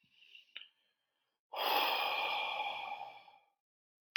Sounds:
Sigh